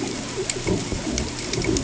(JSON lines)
{"label": "ambient", "recorder": "HydroMoth"}